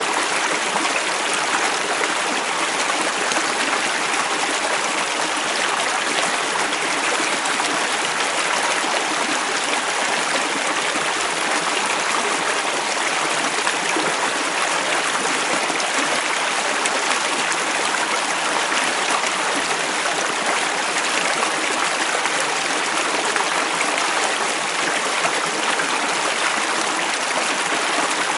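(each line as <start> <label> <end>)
0.0 Water flows loudly with a strong current. 28.4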